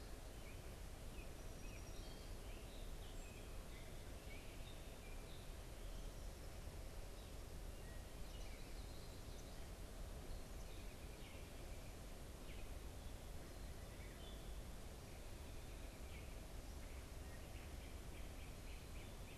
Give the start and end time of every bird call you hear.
[0.00, 5.60] Gray Catbird (Dumetella carolinensis)
[1.50, 3.20] Song Sparrow (Melospiza melodia)
[7.30, 19.38] unidentified bird
[8.50, 9.50] Common Yellowthroat (Geothlypis trichas)
[17.80, 19.38] Great Crested Flycatcher (Myiarchus crinitus)

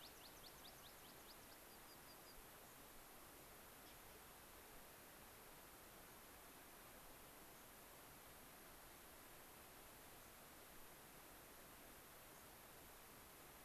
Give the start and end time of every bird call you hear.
[0.00, 2.40] American Pipit (Anthus rubescens)
[2.60, 2.80] unidentified bird
[6.00, 6.20] unidentified bird
[7.50, 7.70] unidentified bird
[10.20, 10.40] unidentified bird
[12.30, 12.50] unidentified bird

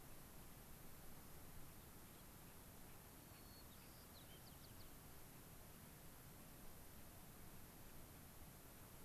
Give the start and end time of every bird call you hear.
[1.44, 4.54] Gray-crowned Rosy-Finch (Leucosticte tephrocotis)
[3.24, 4.94] White-crowned Sparrow (Zonotrichia leucophrys)

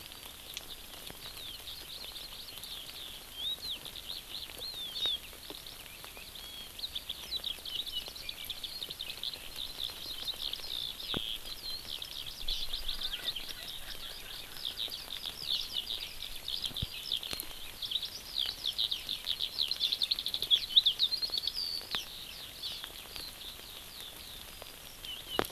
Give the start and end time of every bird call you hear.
[0.00, 24.44] Eurasian Skylark (Alauda arvensis)
[12.84, 14.54] Erckel's Francolin (Pternistis erckelii)

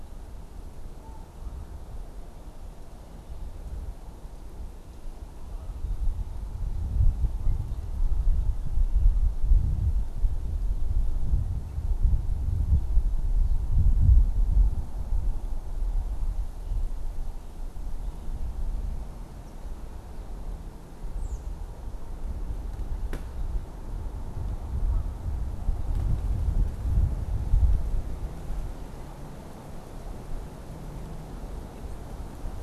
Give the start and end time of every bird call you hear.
[20.97, 21.57] American Robin (Turdus migratorius)

